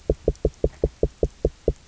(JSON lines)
{"label": "biophony, knock", "recorder": "SoundTrap 300"}